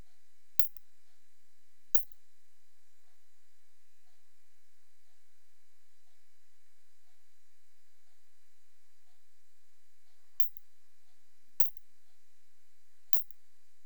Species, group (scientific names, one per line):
Isophya lemnotica
Orthoptera